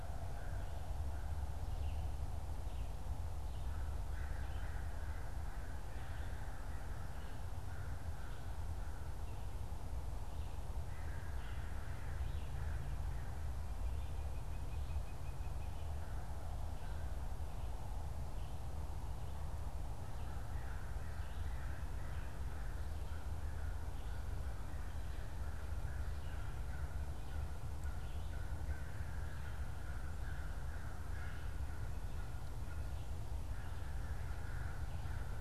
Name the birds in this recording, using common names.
American Crow